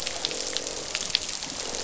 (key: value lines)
label: biophony, croak
recorder: SoundTrap 500